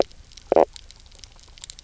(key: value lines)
label: biophony, knock croak
recorder: SoundTrap 300